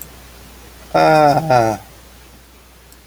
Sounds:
Sigh